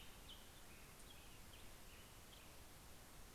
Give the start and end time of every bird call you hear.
0.0s-3.1s: American Robin (Turdus migratorius)

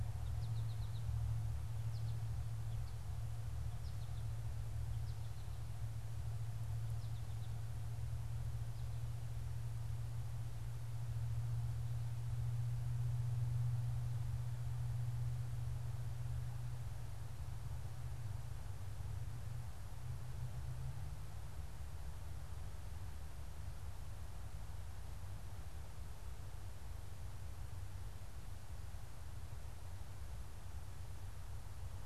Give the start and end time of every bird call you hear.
0.0s-4.3s: American Goldfinch (Spinus tristis)
6.8s-7.8s: American Goldfinch (Spinus tristis)

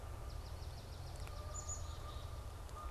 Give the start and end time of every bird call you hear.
0.0s-2.0s: Swamp Sparrow (Melospiza georgiana)
1.0s-2.9s: Canada Goose (Branta canadensis)
1.4s-2.6s: Black-capped Chickadee (Poecile atricapillus)

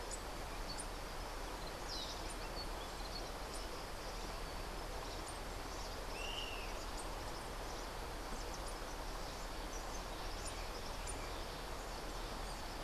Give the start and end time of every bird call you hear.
6.1s-6.7s: Yellow-bellied Elaenia (Elaenia flavogaster)

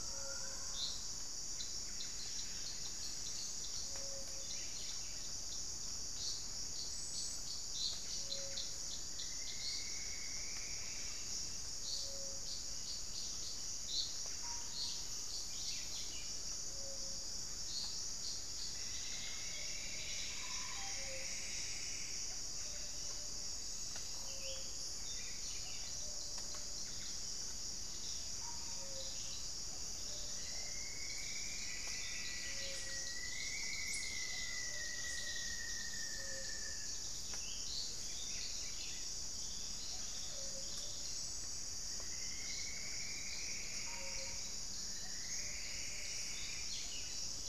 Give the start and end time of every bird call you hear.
0.0s-45.7s: Gray-fronted Dove (Leptotila rufaxilla)
8.3s-12.1s: Plumbeous Antbird (Myrmelastes hyperythrus)
17.8s-42.1s: Thrush-like Wren (Campylorhynchus turdinus)
17.9s-23.3s: Plumbeous Antbird (Myrmelastes hyperythrus)
19.7s-21.5s: Russet-backed Oropendola (Psarocolius angustifrons)
27.8s-39.6s: Plumbeous Pigeon (Patagioenas plumbea)
29.3s-33.3s: unidentified bird
31.0s-37.2s: Rufous-fronted Antthrush (Formicarius rufifrons)
41.6s-47.5s: Plumbeous Antbird (Myrmelastes hyperythrus)
46.9s-47.5s: Gray-fronted Dove (Leptotila rufaxilla)

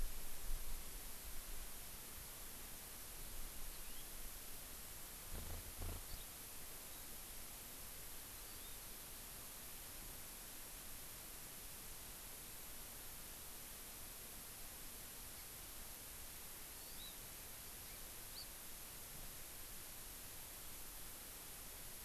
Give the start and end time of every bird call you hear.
3.7s-4.0s: House Finch (Haemorhous mexicanus)
8.3s-8.8s: Hawaii Amakihi (Chlorodrepanis virens)
16.8s-17.1s: Hawaii Amakihi (Chlorodrepanis virens)
18.3s-18.4s: Hawaii Amakihi (Chlorodrepanis virens)

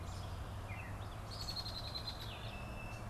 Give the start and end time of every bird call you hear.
0.0s-3.1s: Gray Catbird (Dumetella carolinensis)
0.0s-3.1s: Red-eyed Vireo (Vireo olivaceus)
1.2s-3.1s: Red-winged Blackbird (Agelaius phoeniceus)

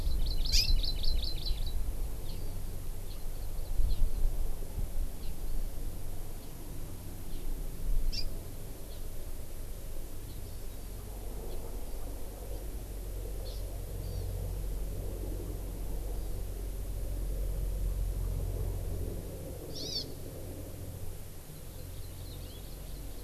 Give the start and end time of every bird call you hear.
0.0s-1.8s: Hawaii Amakihi (Chlorodrepanis virens)
2.2s-2.4s: Hawaii Amakihi (Chlorodrepanis virens)
3.9s-4.0s: Hawaii Amakihi (Chlorodrepanis virens)
8.1s-8.3s: Hawaii Amakihi (Chlorodrepanis virens)
13.4s-13.6s: Hawaii Amakihi (Chlorodrepanis virens)
14.0s-14.3s: Hawaii Amakihi (Chlorodrepanis virens)
19.7s-20.0s: Hawaii Amakihi (Chlorodrepanis virens)
21.5s-23.2s: Hawaii Amakihi (Chlorodrepanis virens)
22.3s-22.6s: House Finch (Haemorhous mexicanus)

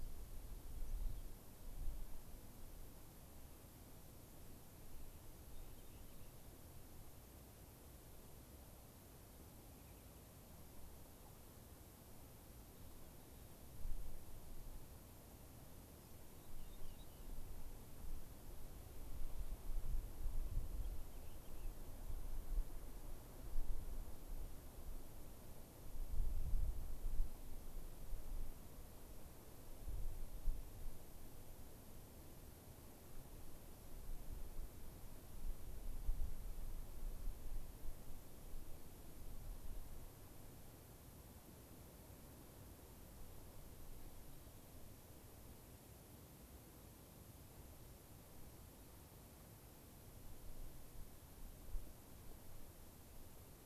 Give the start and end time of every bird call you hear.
5.5s-6.4s: Rock Wren (Salpinctes obsoletus)
9.7s-10.3s: Rock Wren (Salpinctes obsoletus)
16.3s-17.3s: Rock Wren (Salpinctes obsoletus)
20.7s-21.8s: Rock Wren (Salpinctes obsoletus)

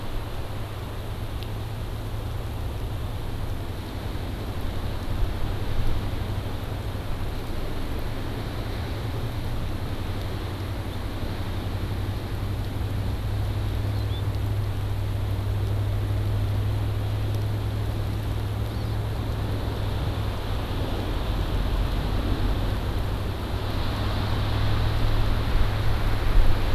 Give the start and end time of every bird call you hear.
13.9s-14.3s: House Finch (Haemorhous mexicanus)
18.7s-19.0s: Hawaii Amakihi (Chlorodrepanis virens)

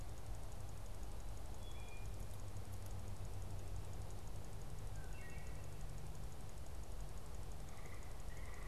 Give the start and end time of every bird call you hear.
1.4s-2.2s: Wood Thrush (Hylocichla mustelina)
4.9s-5.6s: Wood Thrush (Hylocichla mustelina)

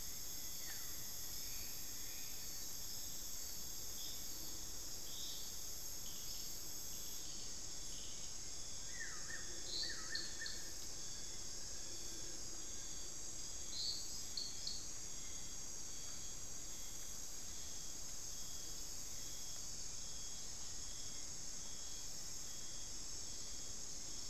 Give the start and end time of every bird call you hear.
0.0s-2.8s: Rufous-fronted Antthrush (Formicarius rufifrons)
0.3s-1.1s: Buff-throated Woodcreeper (Xiphorhynchus guttatus)
8.6s-10.9s: Buff-throated Woodcreeper (Xiphorhynchus guttatus)
10.6s-13.2s: Fasciated Antshrike (Cymbilaimus lineatus)
14.2s-22.0s: Hauxwell's Thrush (Turdus hauxwelli)

